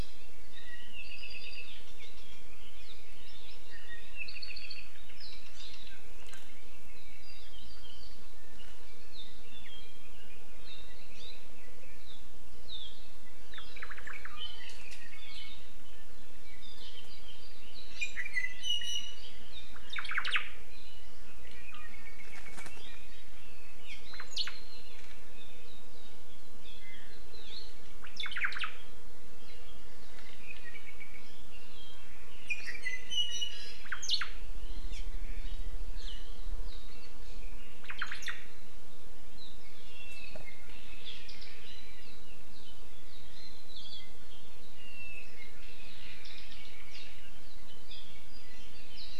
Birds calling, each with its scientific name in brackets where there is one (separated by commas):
Apapane (Himatione sanguinea), Omao (Myadestes obscurus)